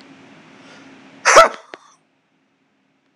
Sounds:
Sneeze